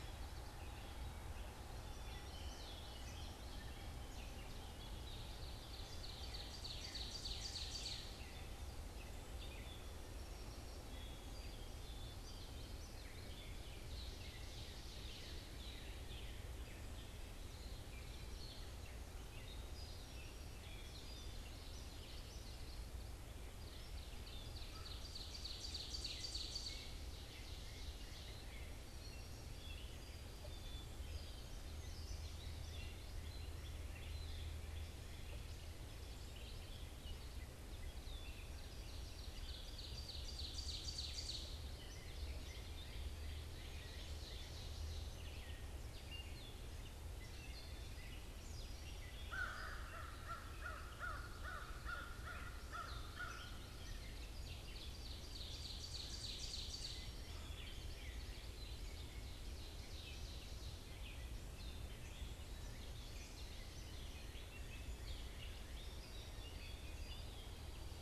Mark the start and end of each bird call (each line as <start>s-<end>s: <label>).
0.0s-68.0s: Gray Catbird (Dumetella carolinensis)
1.7s-3.4s: Common Yellowthroat (Geothlypis trichas)
4.5s-8.4s: Ovenbird (Seiurus aurocapilla)
9.9s-12.5s: Song Sparrow (Melospiza melodia)
13.8s-15.8s: Ovenbird (Seiurus aurocapilla)
19.4s-21.4s: Song Sparrow (Melospiza melodia)
20.8s-23.1s: Common Yellowthroat (Geothlypis trichas)
23.5s-28.7s: Ovenbird (Seiurus aurocapilla)
24.6s-24.9s: American Crow (Corvus brachyrhynchos)
28.8s-31.2s: Song Sparrow (Melospiza melodia)
30.3s-31.5s: Black-capped Chickadee (Poecile atricapillus)
38.5s-41.7s: Ovenbird (Seiurus aurocapilla)
43.3s-45.6s: Ovenbird (Seiurus aurocapilla)
49.1s-53.5s: American Crow (Corvus brachyrhynchos)
54.1s-57.3s: Ovenbird (Seiurus aurocapilla)
56.9s-59.3s: Common Yellowthroat (Geothlypis trichas)
58.8s-61.0s: Ovenbird (Seiurus aurocapilla)